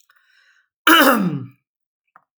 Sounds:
Throat clearing